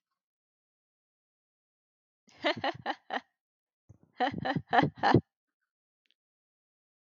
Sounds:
Laughter